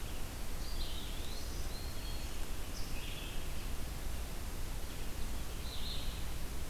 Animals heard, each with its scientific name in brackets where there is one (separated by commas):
Eastern Wood-Pewee (Contopus virens), Red-eyed Vireo (Vireo olivaceus), Black-throated Green Warbler (Setophaga virens)